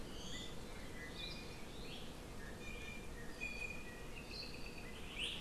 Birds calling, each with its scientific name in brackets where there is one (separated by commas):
Apapane (Himatione sanguinea), Hawaii Amakihi (Chlorodrepanis virens), Iiwi (Drepanis coccinea)